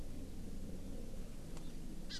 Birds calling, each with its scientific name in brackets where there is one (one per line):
Hawaii Amakihi (Chlorodrepanis virens)